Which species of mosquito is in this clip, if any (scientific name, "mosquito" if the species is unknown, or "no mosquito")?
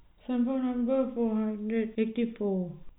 no mosquito